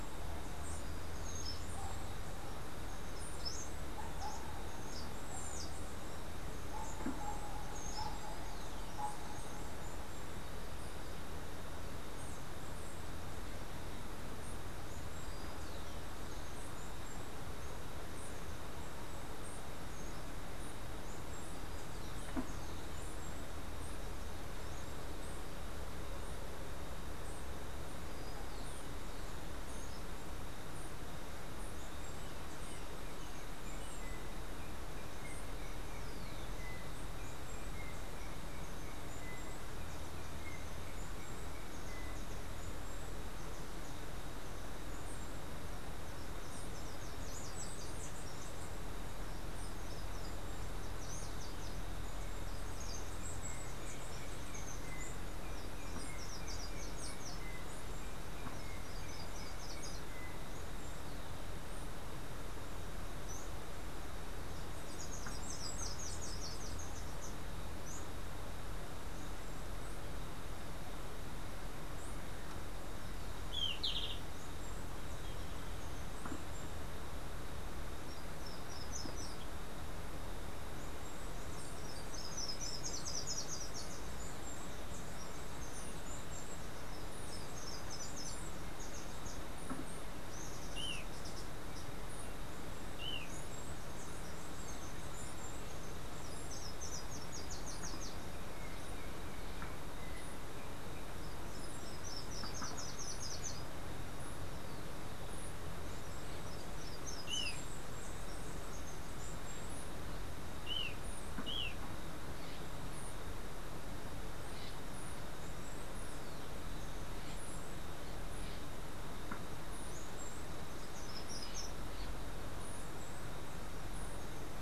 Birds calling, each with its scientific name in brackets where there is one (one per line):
Yellow-backed Oriole (Icterus chrysater)
Steely-vented Hummingbird (Saucerottia saucerottei)
Golden-faced Tyrannulet (Zimmerius chrysops)
Slate-throated Redstart (Myioborus miniatus)